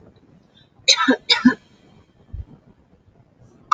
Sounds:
Cough